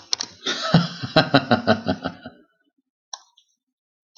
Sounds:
Laughter